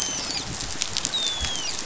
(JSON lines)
{"label": "biophony, dolphin", "recorder": "SoundTrap 500"}